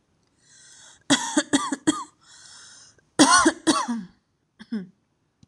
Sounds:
Cough